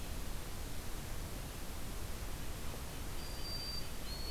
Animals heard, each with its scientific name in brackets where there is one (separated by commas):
White-throated Sparrow (Zonotrichia albicollis)